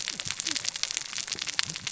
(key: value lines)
label: biophony, cascading saw
recorder: SoundTrap 600 or HydroMoth